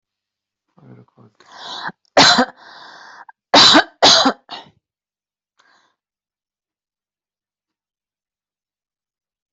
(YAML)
expert_labels:
- quality: good
  cough_type: dry
  dyspnea: false
  wheezing: false
  stridor: false
  choking: false
  congestion: false
  nothing: true
  diagnosis: upper respiratory tract infection
  severity: mild
age: 36
gender: female
respiratory_condition: false
fever_muscle_pain: false
status: healthy